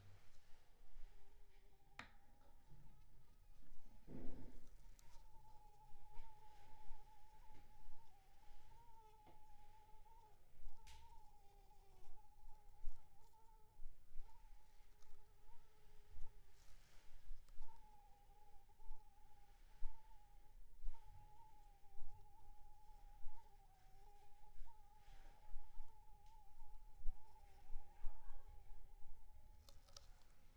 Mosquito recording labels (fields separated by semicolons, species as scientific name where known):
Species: Anopheles funestus s.s.; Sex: female; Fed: unfed; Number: one; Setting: cup